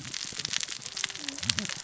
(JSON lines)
{"label": "biophony, cascading saw", "recorder": "SoundTrap 600 or HydroMoth"}